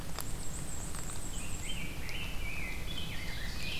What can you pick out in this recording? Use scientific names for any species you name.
Mniotilta varia, Pheucticus ludovicianus, Seiurus aurocapilla